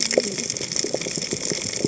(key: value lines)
label: biophony, cascading saw
recorder: HydroMoth